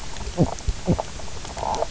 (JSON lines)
{"label": "biophony, knock croak", "recorder": "SoundTrap 300"}